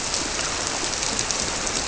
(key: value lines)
label: biophony
recorder: SoundTrap 300